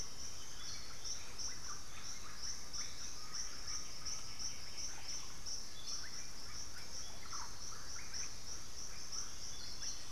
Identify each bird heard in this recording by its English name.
Russet-backed Oropendola, Undulated Tinamou